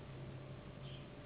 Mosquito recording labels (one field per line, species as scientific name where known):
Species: Anopheles gambiae s.s.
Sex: female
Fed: unfed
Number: one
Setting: insect culture